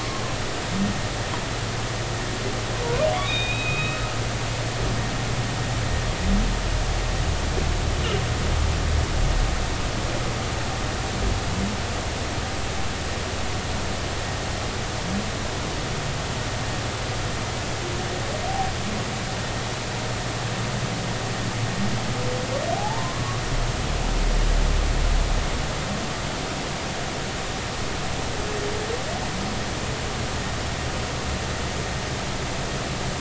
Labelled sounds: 3.1	4.2	humpback whale, 1.2 to 3.9 kHz
22.7	23.2	humpback whale, 0.80 to 1.2 kHz

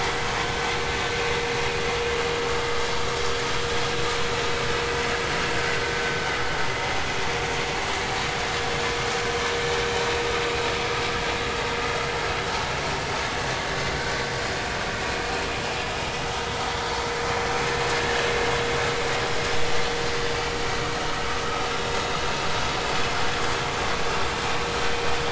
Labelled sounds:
2.6	2.8	vessel noise, 1.2 to 1.3 kHz

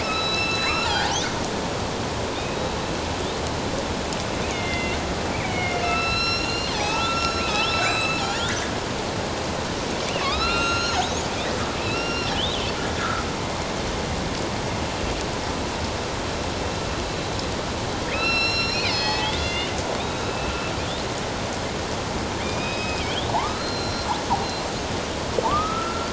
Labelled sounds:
0.0	1.2	killer whale, northern resident, A clan, AB subclan, 0.78 to 7.3 kHz
2.4	2.6	killer whale, northern resident, A clan, AB subclan, 2.4 to 2.6 kHz
4.5	5.0	killer whale, northern resident, A clan, AB subclan, 1.9 to 3.5 kHz
5.3	8.5	killer whale, northern resident, A clan, AB subclan, 0.78 to 8.0 kHz
10.2	11.2	killer whale, northern resident, A clan, AB subclan, 1.0 to 7.9 kHz
11.8	12.7	killer whale, northern resident, A clan, AB subclan, 2.4 to 5.6 kHz
13.0	13.2	killer whale, northern resident, A clan, AB subclan, 1.2 to 1.5 kHz
18.1	19.7	killer whale, northern resident, A clan, AB subclan, 1.2 to 6.1 kHz
20.0	20.5	killer whale, northern resident, A clan, AB subclan, 2.6 to 3.9 kHz
22.4	23.0	killer whale, northern resident, A clan, AB subclan, 2.2 to 5.2 kHz
23.3	24.1	killer whale, northern resident, A clan, AB subclan, 0.78 to 5.7 kHz
25.4	26.1	killer whale, northern resident, A clan, AB subclan, 0.84 to 1.4 kHz

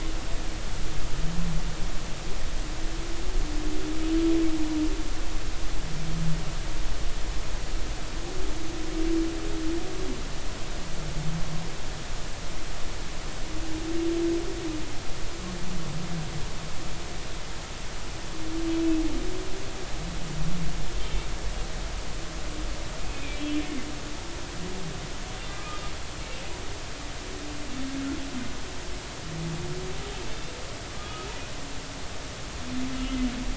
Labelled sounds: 23.0	23.4	humpback whale, 2.3 to 2.6 kHz
25.5	25.8	humpback whale, 1.2 to 1.3 kHz
30.9	31.3	humpback whale, 1.1 to 1.3 kHz

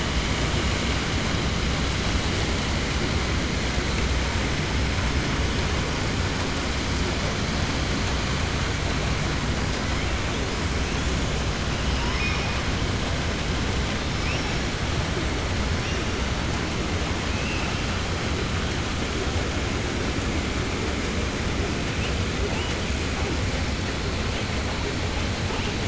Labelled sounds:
11.9	12.5	killer whale, southern resident, 0.95 to 3.1 kHz

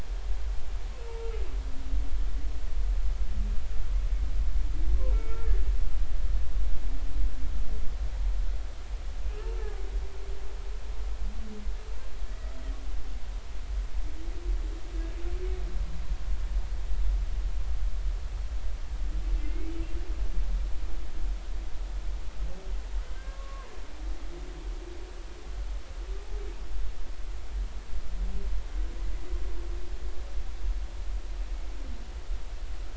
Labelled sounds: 1.1	1.3	humpback whale, 0.86 to 1.0 kHz
5.1	5.5	humpback whale, 1.3 to 2.3 kHz
12.3	12.6	humpback whale, 1.9 to 2.0 kHz
19.4	19.7	humpback whale, 2.0 to 2.3 kHz
23.0	23.7	humpback whale, 0.93 to 1.7 kHz

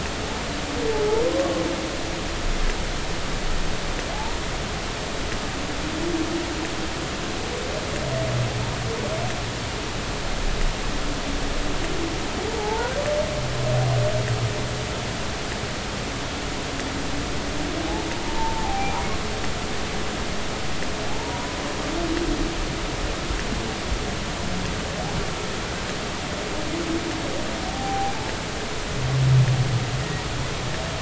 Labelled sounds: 1.3	1.6	humpback whale, 0.99 to 1.2 kHz
4.1	4.4	humpback whale, 0.80 to 0.99 kHz
12.6	12.9	humpback whale, 0.80 to 1.0 kHz
18.2	18.9	humpback whale, 0.80 to 1.0 kHz
21.2	21.6	humpback whale, 0.86 to 1.0 kHz
27.7	28.1	humpback whale, 0.80 to 0.86 kHz
30.0	30.3	humpback whale, 1.8 to 2.0 kHz

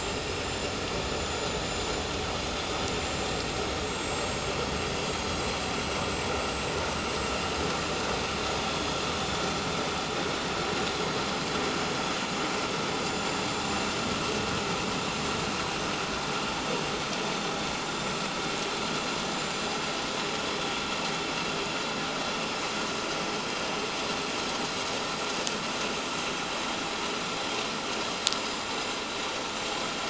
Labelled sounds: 0.4	2.7	vessel noise, 6.9 to 7.9 kHz
3.0	4.4	vessel noise, 6.5 to 7.7 kHz
5.3	6.6	vessel noise, 7.4 to 7.9 kHz
7.3	8.0	vessel noise, 7.2 to 7.5 kHz
8.5	9.5	vessel noise, 3.3 to 7.1 kHz
10.4	10.7	vessel noise, 7.1 to 7.2 kHz
13.1	13.9	vessel noise, 7.0 to 7.3 kHz
15.0	15.4	vessel noise, 7.1 to 7.3 kHz
17.7	18.1	vessel noise, 7.1 to 7.3 kHz
26.6	26.9	vessel noise, 7.0 to 7.2 kHz
27.3	27.5	vessel noise, 7.0 to 7.2 kHz
28.5	29.9	vessel noise, 7.2 to 7.4 kHz

